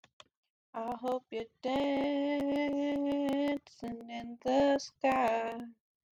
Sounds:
Sigh